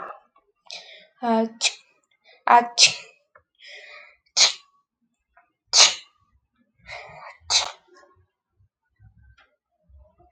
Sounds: Sneeze